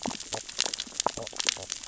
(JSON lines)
{"label": "biophony, stridulation", "recorder": "SoundTrap 600 or HydroMoth"}
{"label": "biophony, sea urchins (Echinidae)", "recorder": "SoundTrap 600 or HydroMoth"}